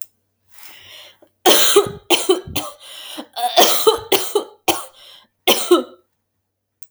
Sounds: Cough